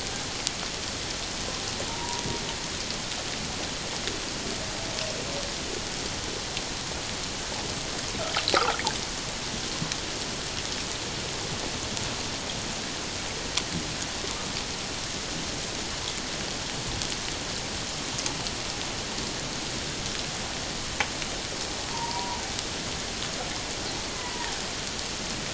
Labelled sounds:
1.9	2.2	killer whale, 0.84 to 1.0 kHz
21.9	22.4	killer whale, 0.84 to 1.1 kHz
24.1	24.5	killer whale, 0.88 to 2.1 kHz

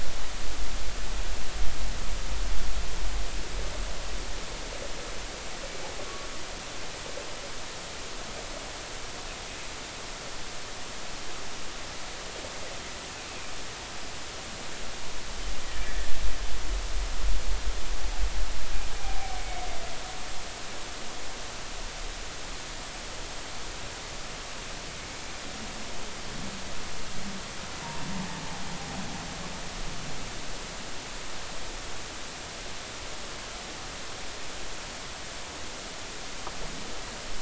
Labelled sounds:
6.0	6.3	humpback whale, 1.1 to 1.2 kHz
15.8	16.1	humpback whale, 1.7 to 1.9 kHz
19.0	19.3	humpback whale, 0.80 to 0.83 kHz

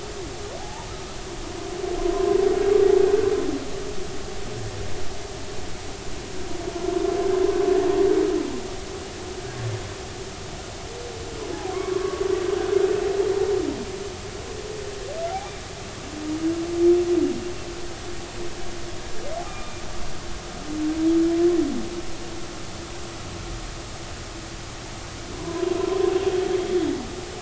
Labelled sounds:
0.6	0.9	humpback whale, 0.80 to 1.0 kHz
11.7	12.2	humpback whale, 0.99 to 1.2 kHz
16.3	16.6	humpback whale, 2.2 to 2.5 kHz
19.4	19.7	humpback whale, 1.2 to 1.4 kHz
25.4	26.0	humpback whale, 0.93 to 1.2 kHz

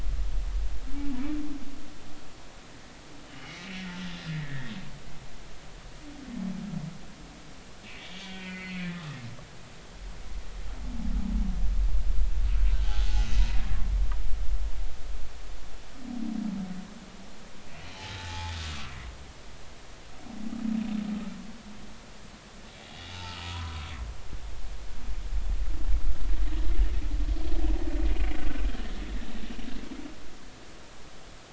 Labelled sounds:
3.2	3.8	humpback whale, 2.0 to 3.1 kHz
4.3	4.7	humpback whale, 1.6 to 2.0 kHz
7.9	9.2	humpback whale, 1.1 to 4.5 kHz
18.2	18.6	humpback whale, 0.80 to 3.5 kHz
22.9	23.9	humpback whale, 0.83 to 2.9 kHz

